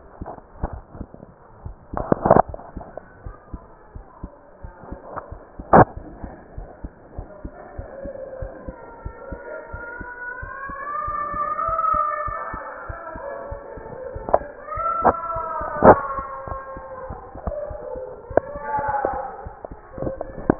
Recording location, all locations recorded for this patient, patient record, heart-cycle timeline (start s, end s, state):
mitral valve (MV)
aortic valve (AV)+pulmonary valve (PV)+tricuspid valve (TV)+mitral valve (MV)
#Age: Adolescent
#Sex: Male
#Height: 145.0 cm
#Weight: 36.2 kg
#Pregnancy status: False
#Murmur: Absent
#Murmur locations: nan
#Most audible location: nan
#Systolic murmur timing: nan
#Systolic murmur shape: nan
#Systolic murmur grading: nan
#Systolic murmur pitch: nan
#Systolic murmur quality: nan
#Diastolic murmur timing: nan
#Diastolic murmur shape: nan
#Diastolic murmur grading: nan
#Diastolic murmur pitch: nan
#Diastolic murmur quality: nan
#Outcome: Normal
#Campaign: 2015 screening campaign
0.00	3.01	unannotated
3.01	3.22	diastole
3.22	3.34	S1
3.34	3.51	systole
3.51	3.60	S2
3.60	3.94	diastole
3.94	4.06	S1
4.06	4.22	systole
4.22	4.32	S2
4.32	4.60	diastole
4.61	4.71	S1
4.71	4.88	systole
4.88	5.00	S2
5.00	5.30	diastole
5.30	5.42	S1
5.42	5.57	systole
5.57	5.64	S2
5.64	5.93	diastole
5.93	6.05	S1
6.05	6.19	systole
6.19	6.30	S2
6.30	6.56	diastole
6.56	6.68	S1
6.68	6.81	systole
6.81	6.90	S2
6.90	7.16	diastole
7.16	7.30	S1
7.30	7.44	systole
7.44	7.54	S2
7.54	7.74	diastole
7.74	7.84	S1
7.84	8.02	systole
8.02	8.16	S2
8.16	8.38	diastole
8.38	8.50	S1
8.50	8.66	systole
8.66	8.74	S2
8.74	9.02	diastole
9.02	9.14	S1
9.14	9.28	systole
9.28	9.38	S2
9.38	9.72	diastole
9.72	9.84	S1
9.84	20.59	unannotated